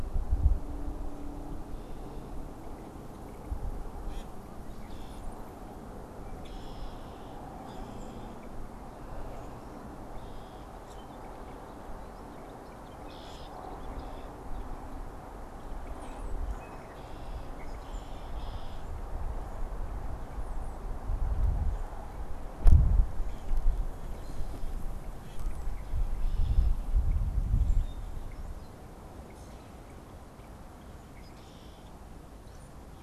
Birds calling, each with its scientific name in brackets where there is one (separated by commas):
Red-winged Blackbird (Agelaius phoeniceus), Brown-headed Cowbird (Molothrus ater), Common Grackle (Quiscalus quiscula), unidentified bird